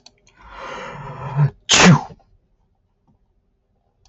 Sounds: Sneeze